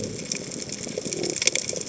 {"label": "biophony", "recorder": "HydroMoth"}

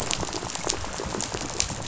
{"label": "biophony, rattle", "recorder": "SoundTrap 500"}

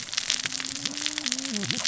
{"label": "biophony, cascading saw", "recorder": "SoundTrap 600 or HydroMoth"}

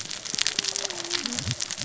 {"label": "biophony, cascading saw", "recorder": "SoundTrap 600 or HydroMoth"}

